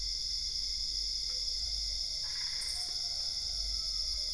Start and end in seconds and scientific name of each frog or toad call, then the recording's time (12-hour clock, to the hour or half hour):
2.2	3.2	Boana albopunctata
3:30am